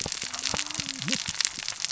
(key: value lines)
label: biophony, cascading saw
recorder: SoundTrap 600 or HydroMoth